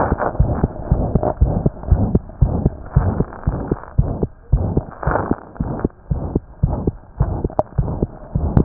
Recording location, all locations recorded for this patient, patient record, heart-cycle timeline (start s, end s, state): aortic valve (AV)
aortic valve (AV)+pulmonary valve (PV)+tricuspid valve (TV)+mitral valve (MV)
#Age: Child
#Sex: Male
#Height: 89.0 cm
#Weight: 11.6 kg
#Pregnancy status: False
#Murmur: Present
#Murmur locations: aortic valve (AV)+mitral valve (MV)+pulmonary valve (PV)+tricuspid valve (TV)
#Most audible location: aortic valve (AV)
#Systolic murmur timing: Mid-systolic
#Systolic murmur shape: Diamond
#Systolic murmur grading: III/VI or higher
#Systolic murmur pitch: High
#Systolic murmur quality: Harsh
#Diastolic murmur timing: nan
#Diastolic murmur shape: nan
#Diastolic murmur grading: nan
#Diastolic murmur pitch: nan
#Diastolic murmur quality: nan
#Outcome: Abnormal
#Campaign: 2015 screening campaign
0.00	1.38	unannotated
1.38	1.52	S1
1.52	1.61	systole
1.61	1.72	S2
1.72	1.89	diastole
1.89	2.01	S1
2.01	2.11	systole
2.11	2.22	S2
2.22	2.39	diastole
2.39	2.50	S1
2.50	2.60	systole
2.60	2.74	S2
2.74	2.92	diastole
2.92	3.05	S1
3.05	3.16	systole
3.16	3.28	S2
3.28	3.43	diastole
3.43	3.54	S1
3.54	3.67	systole
3.67	3.78	S2
3.78	3.94	diastole
3.94	4.06	S1
4.06	4.18	systole
4.18	4.28	S2
4.28	4.49	diastole
4.49	4.62	S1
4.62	4.72	systole
4.72	4.86	S2
4.86	5.04	diastole
5.04	5.15	S1
5.15	5.28	systole
5.28	5.38	S2
5.38	5.55	diastole
5.55	5.67	S1
5.67	5.80	systole
5.80	5.92	S2
5.92	6.07	diastole
6.07	6.20	S1
6.20	6.31	systole
6.31	6.42	S2
6.42	6.59	diastole
6.59	6.72	S1
6.72	6.83	systole
6.83	6.96	S2
6.96	7.16	diastole
7.16	7.27	S1
7.27	7.41	systole
7.41	7.54	S2
7.54	7.74	diastole
7.74	7.85	S1
7.85	7.98	systole
7.98	8.10	S2
8.10	8.32	diastole
8.32	8.42	S1
8.42	8.64	unannotated